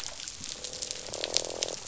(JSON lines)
{"label": "biophony, croak", "recorder": "SoundTrap 500"}